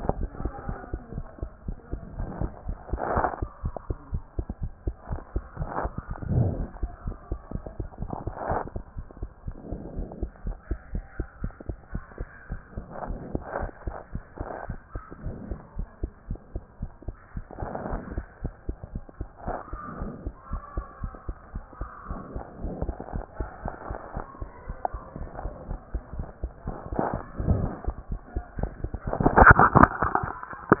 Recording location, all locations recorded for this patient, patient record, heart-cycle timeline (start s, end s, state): mitral valve (MV)
aortic valve (AV)+pulmonary valve (PV)+tricuspid valve (TV)+mitral valve (MV)
#Age: Child
#Sex: Female
#Height: 117.0 cm
#Weight: 19.2 kg
#Pregnancy status: False
#Murmur: Absent
#Murmur locations: nan
#Most audible location: nan
#Systolic murmur timing: nan
#Systolic murmur shape: nan
#Systolic murmur grading: nan
#Systolic murmur pitch: nan
#Systolic murmur quality: nan
#Diastolic murmur timing: nan
#Diastolic murmur shape: nan
#Diastolic murmur grading: nan
#Diastolic murmur pitch: nan
#Diastolic murmur quality: nan
#Outcome: Normal
#Campaign: 2014 screening campaign
0.00	8.98	unannotated
8.98	9.06	S1
9.06	9.20	systole
9.20	9.30	S2
9.30	9.46	diastole
9.46	9.56	S1
9.56	9.70	systole
9.70	9.78	S2
9.78	9.96	diastole
9.96	10.08	S1
10.08	10.20	systole
10.20	10.30	S2
10.30	10.46	diastole
10.46	10.56	S1
10.56	10.70	systole
10.70	10.78	S2
10.78	10.94	diastole
10.94	11.04	S1
11.04	11.18	systole
11.18	11.26	S2
11.26	11.42	diastole
11.42	11.52	S1
11.52	11.68	systole
11.68	11.76	S2
11.76	11.94	diastole
11.94	12.04	S1
12.04	12.18	systole
12.18	12.28	S2
12.28	12.50	diastole
12.50	12.60	S1
12.60	12.76	systole
12.76	12.86	S2
12.86	13.08	diastole
13.08	13.20	S1
13.20	13.32	systole
13.32	13.42	S2
13.42	13.60	diastole
13.60	13.70	S1
13.70	13.86	systole
13.86	13.96	S2
13.96	14.14	diastole
14.14	14.24	S1
14.24	14.38	systole
14.38	14.48	S2
14.48	14.68	diastole
14.68	14.78	S1
14.78	14.94	systole
14.94	15.02	S2
15.02	15.24	diastole
15.24	15.36	S1
15.36	15.50	systole
15.50	15.58	S2
15.58	15.76	diastole
15.76	15.88	S1
15.88	16.02	systole
16.02	16.10	S2
16.10	16.28	diastole
16.28	16.40	S1
16.40	16.54	systole
16.54	16.62	S2
16.62	16.80	diastole
16.80	16.90	S1
16.90	17.06	systole
17.06	17.16	S2
17.16	17.36	diastole
17.36	17.44	S1
17.44	17.60	systole
17.60	17.68	S2
17.68	17.90	diastole
17.90	18.02	S1
18.02	18.16	systole
18.16	18.24	S2
18.24	18.42	diastole
18.42	18.54	S1
18.54	18.68	systole
18.68	18.76	S2
18.76	18.94	diastole
18.94	19.04	S1
19.04	19.18	systole
19.18	19.28	S2
19.28	19.46	diastole
19.46	19.56	S1
19.56	19.72	systole
19.72	19.80	S2
19.80	20.00	diastole
20.00	20.12	S1
20.12	20.24	systole
20.24	20.34	S2
20.34	20.52	diastole
20.52	20.62	S1
20.62	20.76	systole
20.76	20.86	S2
20.86	21.02	diastole
21.02	21.12	S1
21.12	21.28	systole
21.28	21.36	S2
21.36	21.54	diastole
21.54	21.64	S1
21.64	21.80	systole
21.80	21.88	S2
21.88	22.08	diastole
22.08	22.20	S1
22.20	22.34	systole
22.34	22.44	S2
22.44	22.62	diastole
22.62	30.80	unannotated